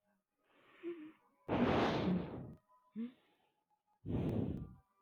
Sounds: Sigh